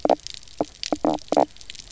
{"label": "biophony, knock croak", "recorder": "SoundTrap 300"}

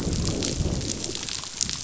{"label": "biophony, growl", "recorder": "SoundTrap 500"}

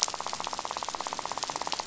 {"label": "biophony, rattle", "recorder": "SoundTrap 500"}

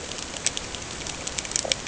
{"label": "ambient", "recorder": "HydroMoth"}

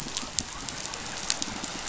{"label": "biophony", "recorder": "SoundTrap 500"}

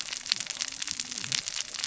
{"label": "biophony, cascading saw", "recorder": "SoundTrap 600 or HydroMoth"}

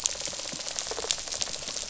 {"label": "biophony, rattle response", "recorder": "SoundTrap 500"}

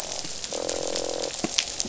{"label": "biophony, croak", "recorder": "SoundTrap 500"}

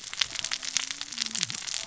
{"label": "biophony, cascading saw", "recorder": "SoundTrap 600 or HydroMoth"}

